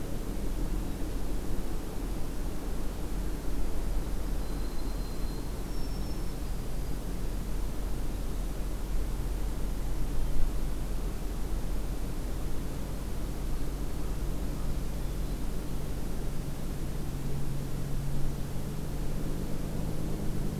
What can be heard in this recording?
White-throated Sparrow